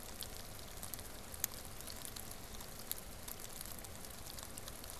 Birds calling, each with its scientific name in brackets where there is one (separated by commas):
Wood Duck (Aix sponsa)